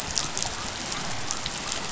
{"label": "biophony", "recorder": "SoundTrap 500"}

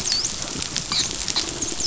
{"label": "biophony", "recorder": "SoundTrap 500"}
{"label": "biophony, dolphin", "recorder": "SoundTrap 500"}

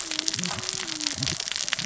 {"label": "biophony, cascading saw", "recorder": "SoundTrap 600 or HydroMoth"}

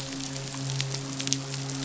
{"label": "biophony, midshipman", "recorder": "SoundTrap 500"}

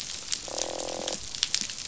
{"label": "biophony, croak", "recorder": "SoundTrap 500"}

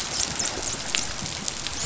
{"label": "biophony, dolphin", "recorder": "SoundTrap 500"}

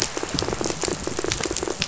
{"label": "biophony, rattle", "recorder": "SoundTrap 500"}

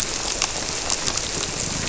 {"label": "biophony", "recorder": "SoundTrap 300"}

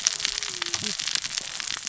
{"label": "biophony, cascading saw", "recorder": "SoundTrap 600 or HydroMoth"}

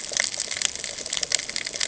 {"label": "ambient", "recorder": "HydroMoth"}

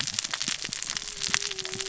{"label": "biophony, cascading saw", "recorder": "SoundTrap 600 or HydroMoth"}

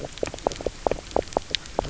{"label": "biophony, knock croak", "recorder": "SoundTrap 300"}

